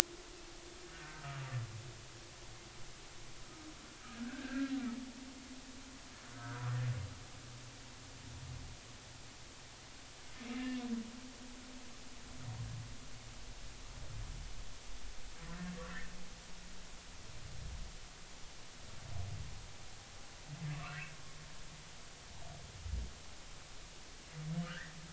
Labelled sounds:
0.9	1.6	humpback whale, 1.1 to 1.7 kHz
4.2	4.7	humpback whale, 1.3 to 1.8 kHz
6.3	6.7	humpback whale, 1.2 to 1.7 kHz
10.5	10.8	humpback whale, 2.7 to 2.9 kHz
20.8	21.0	humpback whale, 1.0 to 1.5 kHz
24.6	25.0	humpback whale, 1.2 to 2.0 kHz

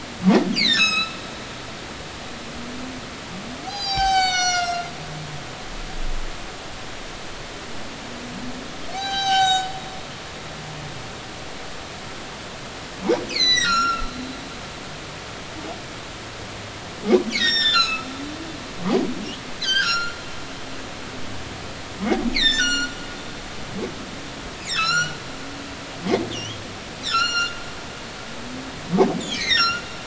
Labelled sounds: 0.5	1.2	humpback whale, 1.2 to 7.9 kHz
3.7	4.9	humpback whale, 0.80 to 8.0 kHz
8.9	9.7	humpback whale, 0.80 to 7.9 kHz
13.3	14.1	humpback whale, 1.2 to 8.0 kHz
17.3	18.1	humpback whale, 1.2 to 7.5 kHz
19.6	20.2	humpback whale, 1.2 to 7.2 kHz
22.3	23.0	humpback whale, 1.3 to 7.3 kHz
24.6	25.2	humpback whale, 1.2 to 5.9 kHz
26.3	27.5	humpback whale, 1.3 to 7.3 kHz
29.2	29.8	humpback whale, 1.3 to 7.1 kHz

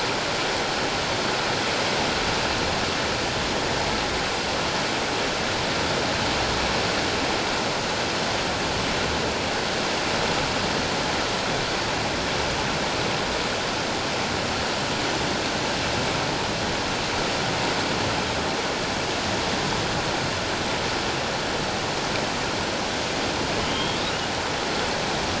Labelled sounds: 23.6	24.0	humpback whale, 2.9 to 3.3 kHz

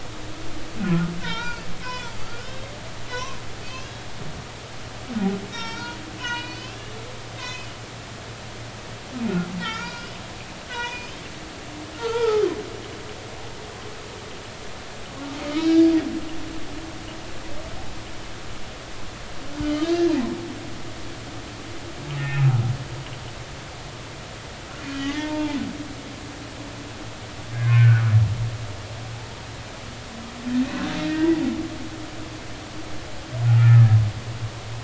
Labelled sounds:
1.2	2.1	humpback whale, 0.86 to 5.6 kHz
2.4	3.9	humpback whale, 0.93 to 6.0 kHz
5.5	6.8	humpback whale, 0.86 to 5.7 kHz
7.3	7.7	humpback whale, 1.9 to 5.1 kHz
9.6	10.2	humpback whale, 1.3 to 4.9 kHz
10.6	11.2	humpback whale, 0.90 to 5.1 kHz
12.0	12.5	humpback whale, 0.80 to 1.0 kHz
13.0	13.5	humpback whale, 1.2 to 1.5 kHz
15.4	15.9	humpback whale, 1.2 to 5.7 kHz
19.6	19.9	humpback whale, 2.8 to 3.2 kHz
22.2	22.5	humpback whale, 1.8 to 2.7 kHz
25.0	25.6	humpback whale, 0.80 to 2.2 kHz
27.5	28.1	humpback whale, 1.2 to 2.3 kHz
31.0	31.4	humpback whale, 1.8 to 2.0 kHz
33.5	34.0	humpback whale, 1.2 to 1.8 kHz

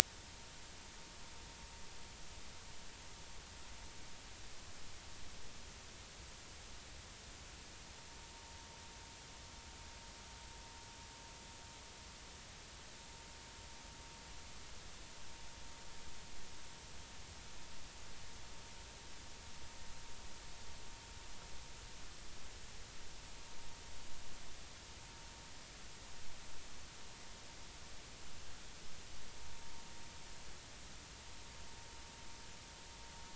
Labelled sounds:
29.5	29.8	vessel noise, 0.90 to 0.99 kHz

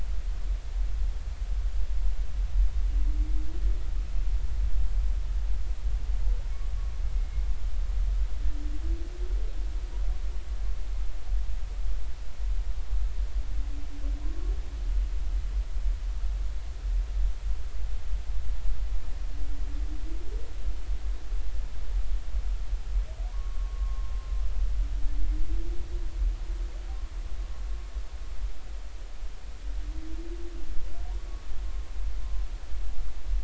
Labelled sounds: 14.2	14.5	humpback whale, 0.93 to 1.2 kHz
23.3	24.1	humpback whale, 0.93 to 1.2 kHz

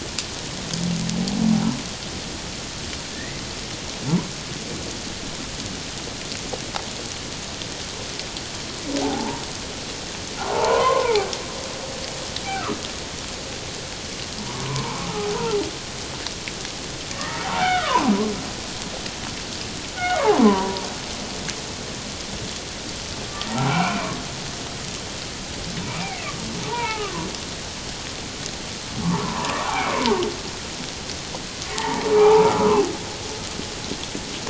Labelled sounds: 3.1	3.4	humpback whale, 1.7 to 2.1 kHz
9.0	9.4	humpback whale, 0.78 to 1.0 kHz
10.4	11.3	humpback whale, 0.78 to 1.5 kHz
12.5	12.8	humpback whale, 1.1 to 1.6 kHz
14.5	15.1	humpback whale, 0.81 to 1.2 kHz
17.1	18.3	humpback whale, 0.78 to 2.0 kHz
20.0	20.8	humpback whale, 0.78 to 2.3 kHz
23.3	24.1	humpback whale, 0.78 to 2.6 kHz
25.8	27.3	humpback whale, 0.78 to 2.7 kHz
29.0	30.2	humpback whale, 0.78 to 1.5 kHz
31.7	32.5	humpback whale, 0.78 to 2.0 kHz

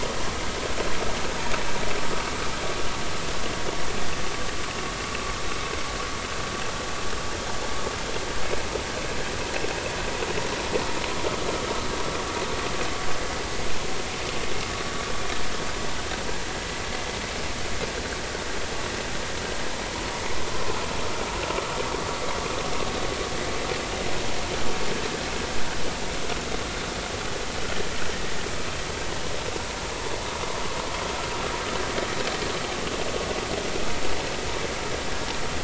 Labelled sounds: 20.5	20.8	vessel noise, 0.96 to 1.1 kHz

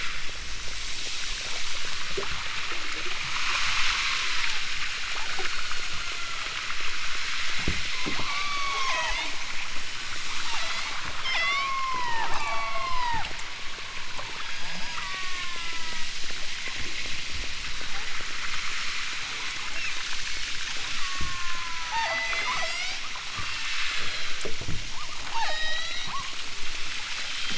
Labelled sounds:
4.0	4.7	killer whale, southern Alaska resident, 0.50 to 1.7 kHz
5.0	6.6	killer whale, southern Alaska resident, 1.1 to 2.6 kHz
8.2	9.4	killer whale, southern Alaska resident, 0.46 to 8.0 kHz
9.9	16.2	killer whale, southern Alaska resident, 0.56 to 8.0 kHz
21.0	23.1	killer whale, southern Alaska resident, 0.32 to 8.0 kHz
23.8	24.4	killer whale, southern Alaska resident, 2.7 to 4.7 kHz
25.2	26.6	killer whale, southern Alaska resident, 0.28 to 8.0 kHz

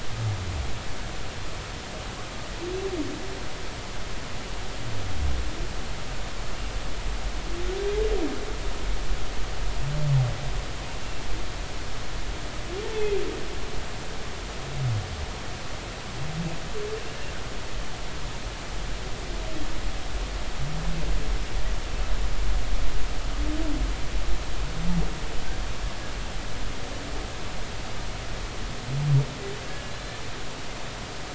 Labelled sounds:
12.8	13.1	humpback whale, 0.83 to 0.93 kHz
29.6	30.2	humpback whale, 1.5 to 4.2 kHz

